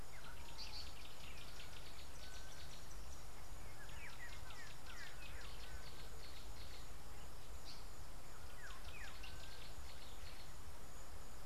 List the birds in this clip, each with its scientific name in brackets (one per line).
Yellow-bellied Greenbul (Chlorocichla flaviventris)
Gray-backed Camaroptera (Camaroptera brevicaudata)